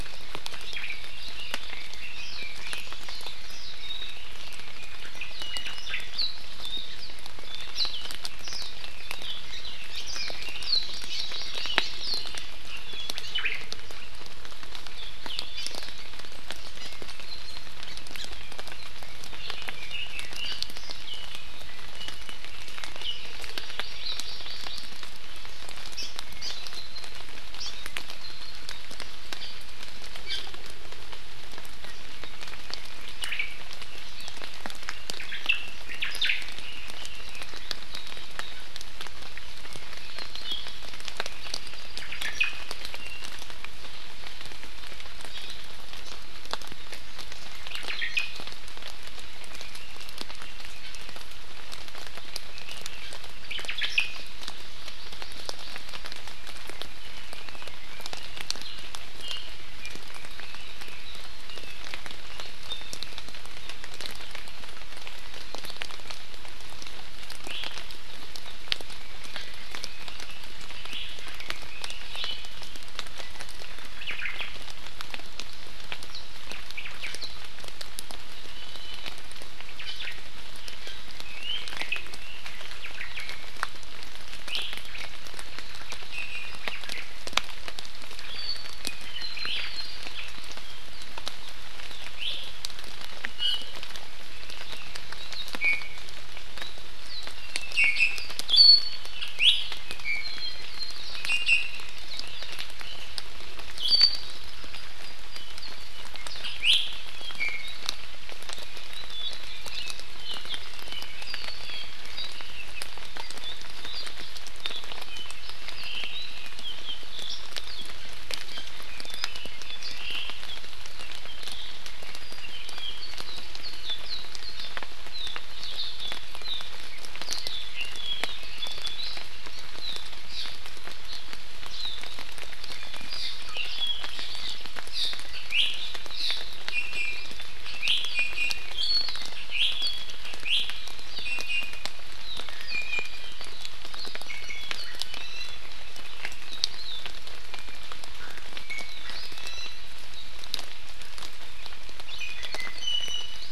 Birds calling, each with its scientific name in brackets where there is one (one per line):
Warbling White-eye (Zosterops japonicus)
Apapane (Himatione sanguinea)
Hawaii Amakihi (Chlorodrepanis virens)
Red-billed Leiothrix (Leiothrix lutea)
Iiwi (Drepanis coccinea)
Omao (Myadestes obscurus)